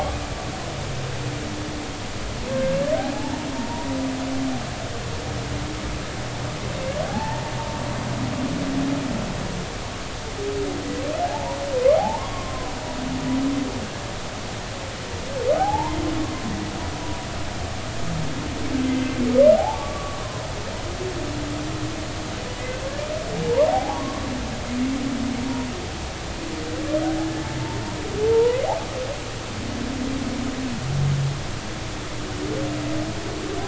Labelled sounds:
2.5	3.9	humpback whale, 0.80 to 1.7 kHz
7.1	7.5	humpback whale, 0.80 to 0.96 kHz
11.2	12.7	humpback whale, 0.80 to 1.2 kHz
15.5	16.0	humpback whale, 0.80 to 1.1 kHz
19.5	20.2	humpback whale, 0.80 to 1.2 kHz
23.7	24.3	humpback whale, 0.80 to 1.2 kHz
28.3	28.6	humpback whale, 0.86 to 1.1 kHz

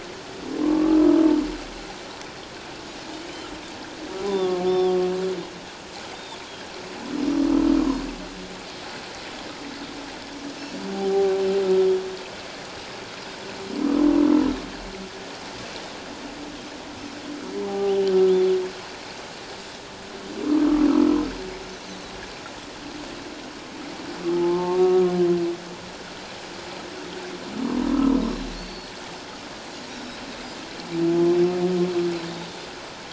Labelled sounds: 0.6	1.2	humpback whale, 0.97 to 1.4 kHz
4.2	4.9	humpback whale, 0.91 to 5.4 kHz
4.7	5.0	Pacific white-sided dolphin, 1.1 to 3.6 kHz
6.1	6.4	Pacific white-sided dolphin, 3.3 to 3.8 kHz
10.9	11.3	humpback whale, 0.78 to 0.84 kHz
17.7	18.0	humpback whale, 0.78 to 1.2 kHz
20.9	21.2	humpback whale, 1.2 to 1.4 kHz
24.3	25.1	humpback whale, 0.81 to 1.3 kHz
27.6	28.2	humpback whale, 0.91 to 1.4 kHz
28.5	28.9	Pacific white-sided dolphin, 4.2 to 4.6 kHz

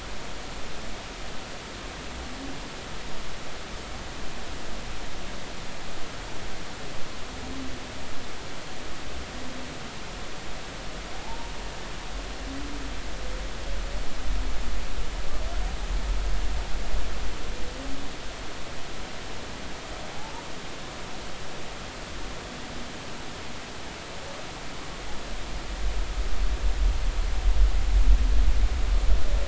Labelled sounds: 11.2	11.5	humpback whale, 0.80 to 0.99 kHz

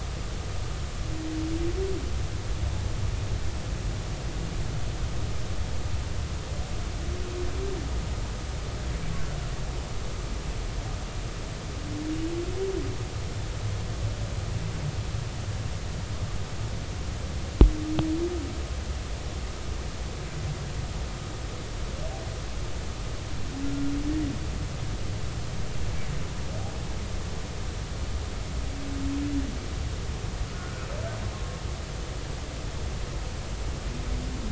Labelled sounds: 23.7	23.9	humpback whale, 1.3 to 1.4 kHz
30.5	30.8	humpback whale, 1.3 to 1.6 kHz

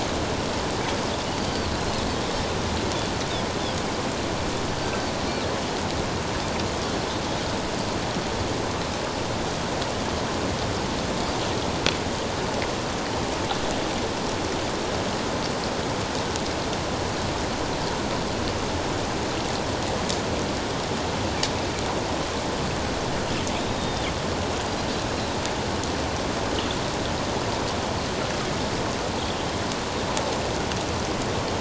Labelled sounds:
23.6	24.1	Pacific white-sided dolphin, 3.0 to 3.8 kHz

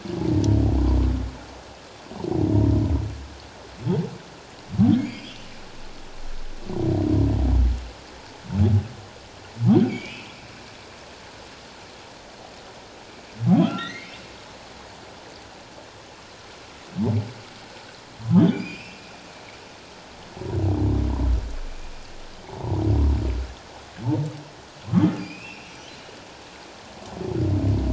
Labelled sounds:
5.0	5.4	humpback whale, 2.1 to 5.1 kHz
9.8	10.3	humpback whale, 2.2 to 2.7 kHz
13.6	14.1	humpback whale, 1.2 to 4.5 kHz
18.4	19.0	humpback whale, 2.2 to 5.0 kHz
22.4	22.7	humpback whale, 0.78 to 1.0 kHz
24.9	25.9	humpback whale, 0.97 to 6.2 kHz

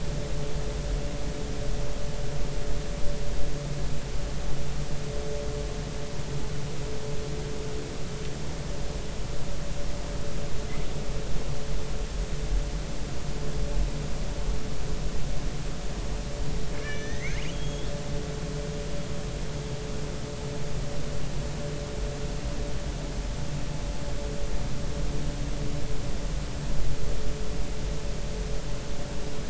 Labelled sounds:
16.8	17.9	killer whale, northern resident, R clan, call N32ii, 1.6 to 6.5 kHz

